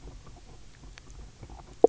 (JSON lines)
{"label": "biophony, knock croak", "recorder": "SoundTrap 300"}